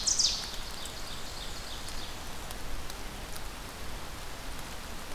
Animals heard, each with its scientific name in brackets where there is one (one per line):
Ovenbird (Seiurus aurocapilla)